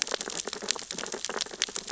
{"label": "biophony, sea urchins (Echinidae)", "recorder": "SoundTrap 600 or HydroMoth"}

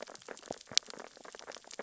{"label": "biophony, sea urchins (Echinidae)", "recorder": "SoundTrap 600 or HydroMoth"}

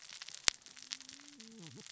{"label": "biophony, cascading saw", "recorder": "SoundTrap 600 or HydroMoth"}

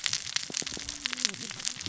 {"label": "biophony, cascading saw", "recorder": "SoundTrap 600 or HydroMoth"}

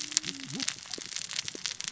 {"label": "biophony, cascading saw", "recorder": "SoundTrap 600 or HydroMoth"}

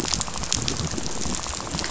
{"label": "biophony, rattle", "recorder": "SoundTrap 500"}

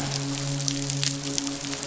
{"label": "biophony, midshipman", "recorder": "SoundTrap 500"}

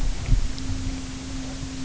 {"label": "anthrophony, boat engine", "recorder": "SoundTrap 300"}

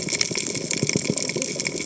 {"label": "biophony, cascading saw", "recorder": "HydroMoth"}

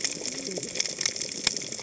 {"label": "biophony, cascading saw", "recorder": "HydroMoth"}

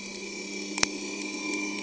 {"label": "anthrophony, boat engine", "recorder": "HydroMoth"}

